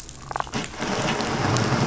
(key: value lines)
label: biophony
recorder: SoundTrap 500

label: anthrophony, boat engine
recorder: SoundTrap 500